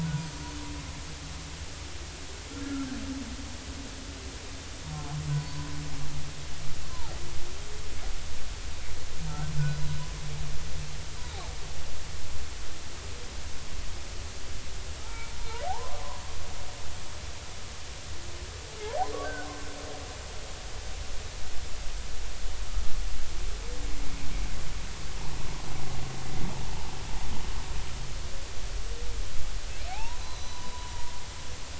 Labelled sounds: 2.5	2.9	humpback whale, 1.3 to 1.5 kHz
5.3	5.7	humpback whale, 0.93 to 4.5 kHz
6.9	7.1	humpback whale, 0.80 to 1.1 kHz
9.7	10.0	humpback whale, 3.8 to 4.1 kHz
15.0	15.3	humpback whale, 0.83 to 2.4 kHz
15.6	16.0	humpback whale, 0.80 to 1.2 kHz
19.2	19.5	humpback whale, 1.4 to 1.6 kHz
29.9	30.9	humpback whale, 0.80 to 6.1 kHz

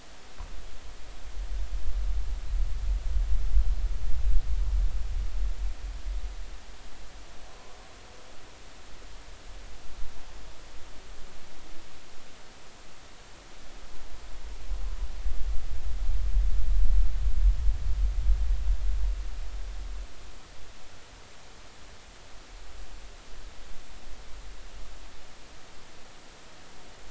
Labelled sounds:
7.5	7.8	humpback whale, 0.96 to 1.2 kHz

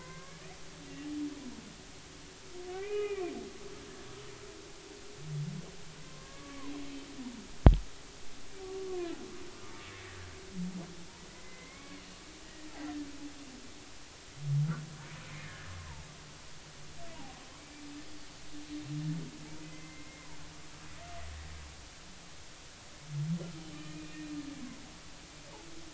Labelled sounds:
0.0	0.4	humpback whale, 1.5 to 2.3 kHz
1.0	1.4	humpback whale, 0.90 to 1.2 kHz
2.7	3.2	humpback whale, 1.1 to 2.9 kHz
6.1	6.7	humpback whale, 0.90 to 2.3 kHz
11.3	12.0	humpback whale, 0.99 to 2.3 kHz
15.3	15.7	humpback whale, 1.6 to 2.4 kHz
17.5	17.8	humpback whale, 2.1 to 2.4 kHz
19.6	20.3	humpback whale, 2.0 to 2.2 kHz
23.7	24.3	humpback whale, 2.3 to 2.5 kHz

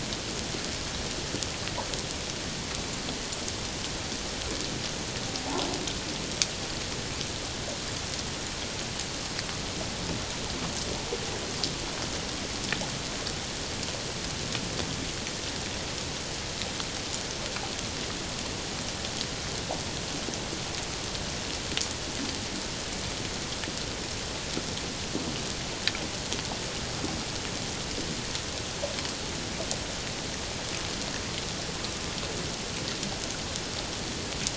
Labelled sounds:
5.4	5.7	humpback whale, 0.78 to 1.1 kHz

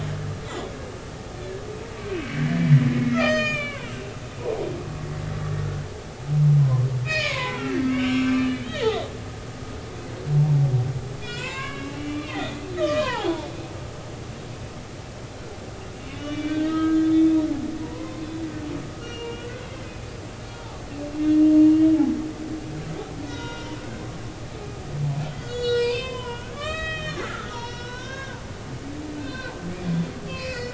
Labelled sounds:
0.5	0.8	humpback whale, 3.2 to 3.6 kHz
1.3	1.6	humpback whale, 1.6 to 1.8 kHz
2.3	4.9	humpback whale, 0.93 to 6.9 kHz
6.6	9.1	humpback whale, 0.93 to 5.7 kHz
11.2	13.5	humpback whale, 0.80 to 7.4 kHz
16.1	17.4	humpback whale, 1.2 to 3.9 kHz
17.8	18.3	humpback whale, 0.90 to 1.1 kHz
19.0	20.1	humpback whale, 2.2 to 4.4 kHz
21.1	21.9	humpback whale, 2.8 to 3.4 kHz
23.2	23.7	humpback whale, 0.90 to 5.8 kHz
25.3	28.4	humpback whale, 0.90 to 7.4 kHz
29.2	29.5	humpback whale, 0.99 to 4.2 kHz
30.3	30.7	humpback whale, 1.9 to 4.8 kHz

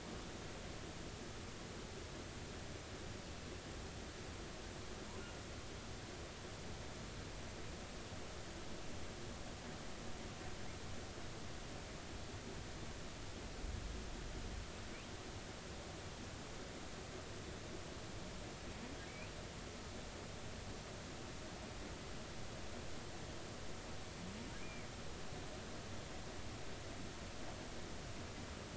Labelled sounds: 19.1	19.3	humpback whale, 2.1 to 2.7 kHz
24.6	24.9	humpback whale, 2.1 to 2.5 kHz

